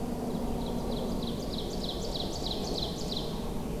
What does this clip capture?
Winter Wren, Ovenbird